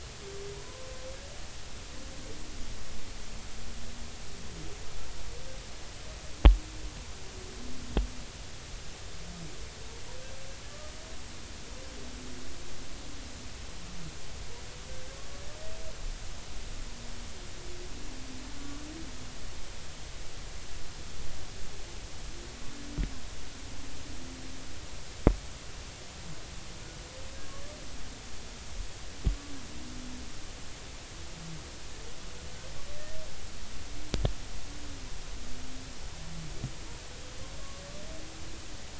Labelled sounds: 0.5	0.9	humpback whale, 0.90 to 1.1 kHz

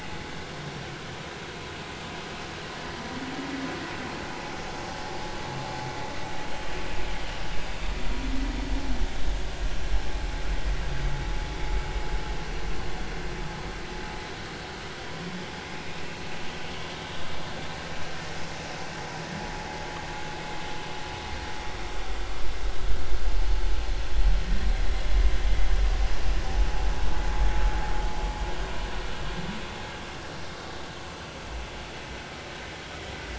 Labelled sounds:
6.5	6.7	humpback whale, 3.1 to 3.2 kHz
24.4	24.7	humpback whale, 1.7 to 1.9 kHz

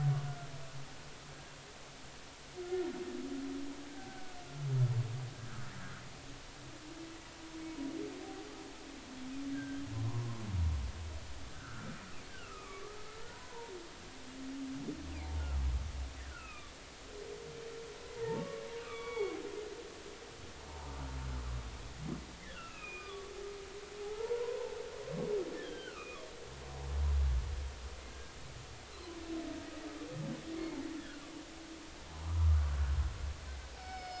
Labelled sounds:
2.6	2.9	humpback whale, 1.3 to 1.5 kHz
4.1	4.4	humpback whale, 1.4 to 1.6 kHz
9.5	10.4	humpback whale, 0.93 to 1.7 kHz
11.5	11.9	humpback whale, 1.2 to 1.6 kHz
12.3	13.0	humpback whale, 1.1 to 1.7 kHz
13.2	13.7	humpback whale, 0.86 to 1.5 kHz
16.3	16.7	humpback whale, 1.1 to 2.8 kHz
18.2	19.4	humpback whale, 0.83 to 3.5 kHz
20.7	20.9	humpback whale, 0.80 to 1.1 kHz
22.5	23.3	humpback whale, 1.1 to 3.0 kHz
24.0	26.2	humpback whale, 0.80 to 3.4 kHz
28.1	29.2	humpback whale, 0.96 to 1.7 kHz
31.0	31.2	humpback whale, 1.3 to 1.8 kHz
33.8	34.1	humpback whale, 2.1 to 5.4 kHz

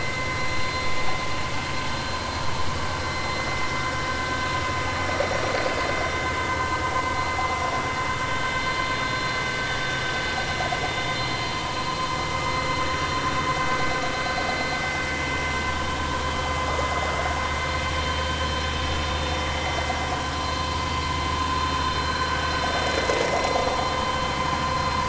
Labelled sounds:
3.1	3.5	vessel noise, 2.0 to 2.1 kHz
11.2	11.5	vessel noise, 3.0 to 4.2 kHz

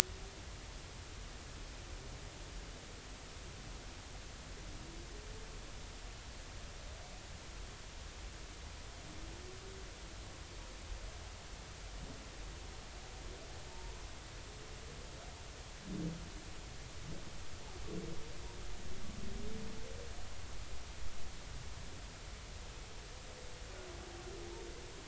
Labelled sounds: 13.7	14.0	humpback whale, 0.86 to 1.0 kHz

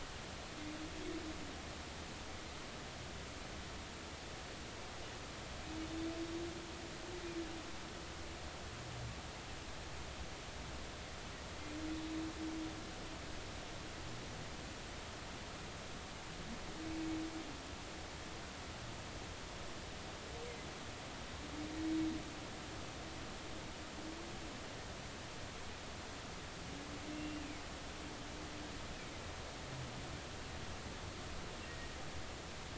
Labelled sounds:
27.1	27.4	humpback whale, 2.6 to 2.8 kHz

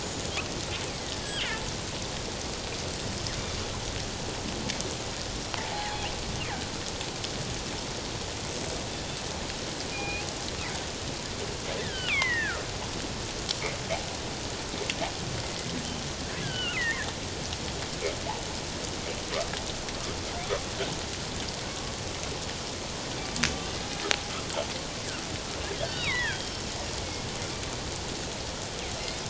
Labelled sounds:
0.0	1.5	killer whale, northern resident, G clan, 1.8 to 8.0 kHz
5.6	6.1	killer whale, northern resident, G clan, 0.78 to 4.2 kHz
9.9	10.3	killer whale, northern resident, G clan, 2.3 to 2.8 kHz
11.8	12.6	killer whale, northern resident, G clan, 0.88 to 3.7 kHz
15.4	15.7	killer whale, northern resident, G clan, 2.0 to 2.1 kHz
16.4	17.1	killer whale, northern resident, G clan, 1.2 to 3.2 kHz
21.7	21.9	killer whale, northern resident, G clan, 1.1 to 1.2 kHz
25.8	26.7	killer whale, northern resident, G clan, 0.88 to 5.5 kHz

